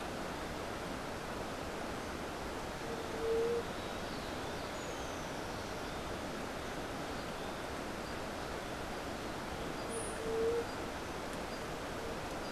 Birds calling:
White-eared Ground-Sparrow (Melozone leucotis), White-tipped Dove (Leptotila verreauxi)

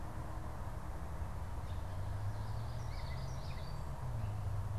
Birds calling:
Common Yellowthroat (Geothlypis trichas)

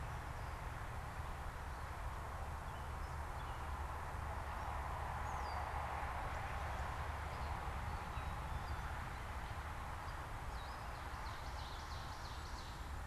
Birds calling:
unidentified bird, Ovenbird (Seiurus aurocapilla), Gray Catbird (Dumetella carolinensis)

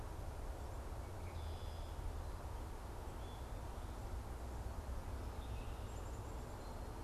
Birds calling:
Black-capped Chickadee (Poecile atricapillus), Red-winged Blackbird (Agelaius phoeniceus)

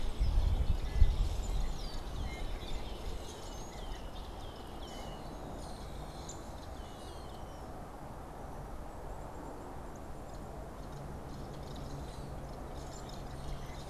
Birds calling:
unidentified bird, Downy Woodpecker (Dryobates pubescens)

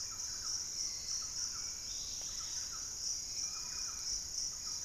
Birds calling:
Dusky-capped Flycatcher (Myiarchus tuberculifer), Hauxwell's Thrush (Turdus hauxwelli), Thrush-like Wren (Campylorhynchus turdinus), Dusky-capped Greenlet (Pachysylvia hypoxantha)

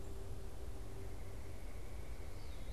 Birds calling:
Red-bellied Woodpecker (Melanerpes carolinus), Tufted Titmouse (Baeolophus bicolor), Veery (Catharus fuscescens)

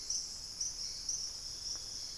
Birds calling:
unidentified bird, Chestnut-winged Foliage-gleaner (Dendroma erythroptera), Dusky-capped Greenlet (Pachysylvia hypoxantha)

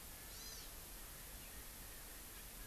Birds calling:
Hawaii Amakihi (Chlorodrepanis virens)

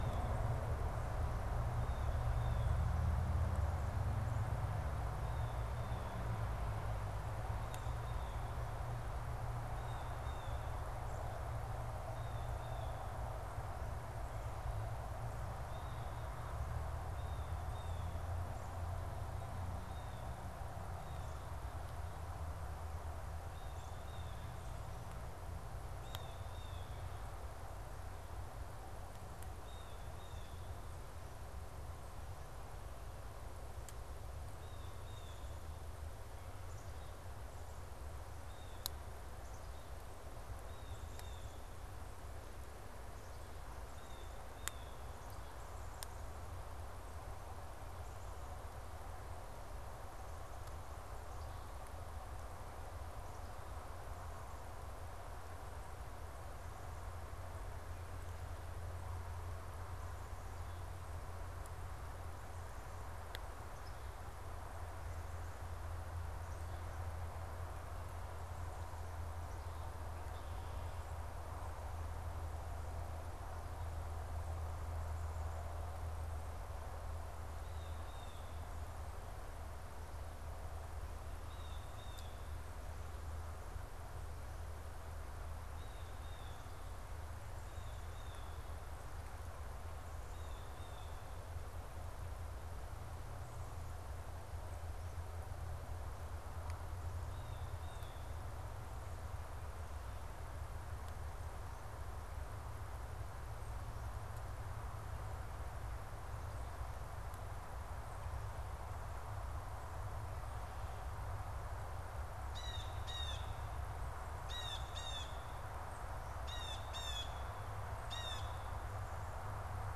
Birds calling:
Black-capped Chickadee (Poecile atricapillus), Blue Jay (Cyanocitta cristata), Red-winged Blackbird (Agelaius phoeniceus)

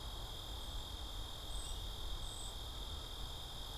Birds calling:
Cedar Waxwing (Bombycilla cedrorum), American Goldfinch (Spinus tristis)

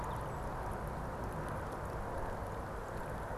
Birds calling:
Song Sparrow (Melospiza melodia)

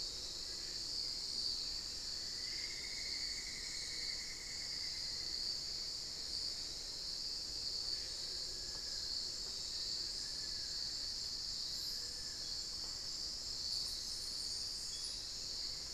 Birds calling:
Hauxwell's Thrush (Turdus hauxwelli), Cinnamon-throated Woodcreeper (Dendrexetastes rufigula), Long-billed Woodcreeper (Nasica longirostris)

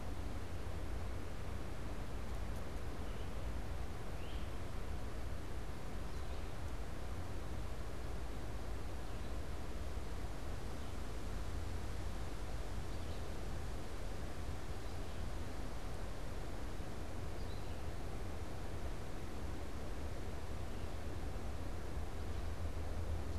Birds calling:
Red-eyed Vireo (Vireo olivaceus), Great Crested Flycatcher (Myiarchus crinitus)

